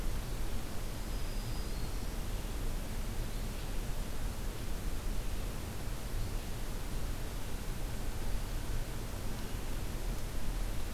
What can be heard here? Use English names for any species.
Black-throated Green Warbler